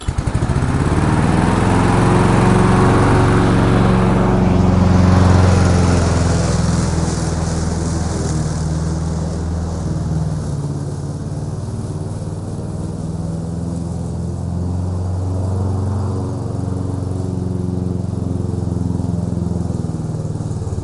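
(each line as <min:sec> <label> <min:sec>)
0:00.0 An engine starts chattering and then runs smoothly nearby. 0:07.1
0:00.0 A lawn mower cuts grass steadily and gradually fades into the distance. 0:20.8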